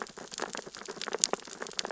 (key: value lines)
label: biophony, sea urchins (Echinidae)
recorder: SoundTrap 600 or HydroMoth